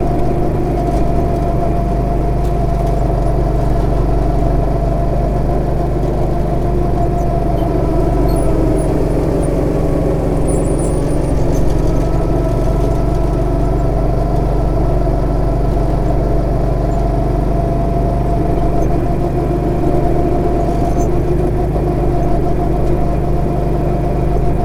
Do people start talking loudly?
no